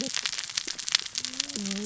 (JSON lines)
{"label": "biophony, cascading saw", "recorder": "SoundTrap 600 or HydroMoth"}